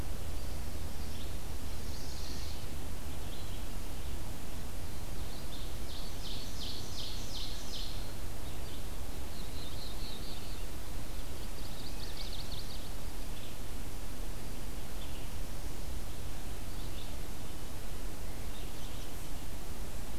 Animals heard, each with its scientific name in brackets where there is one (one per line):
Black-throated Blue Warbler (Setophaga caerulescens)
Ovenbird (Seiurus aurocapilla)
Chestnut-sided Warbler (Setophaga pensylvanica)
Red-eyed Vireo (Vireo olivaceus)